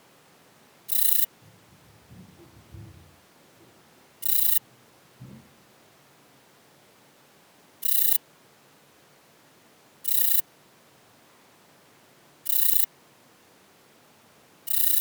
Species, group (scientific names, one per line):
Rhacocleis annulata
Orthoptera